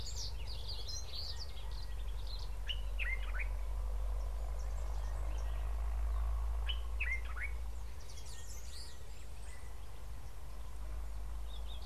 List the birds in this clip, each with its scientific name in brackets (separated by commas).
Brimstone Canary (Crithagra sulphurata), Common Bulbul (Pycnonotus barbatus)